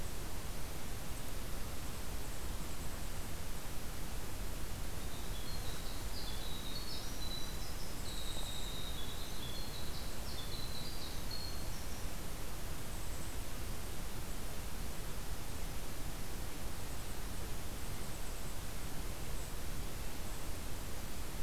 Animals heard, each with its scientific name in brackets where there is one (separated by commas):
Winter Wren (Troglodytes hiemalis), Golden-crowned Kinglet (Regulus satrapa)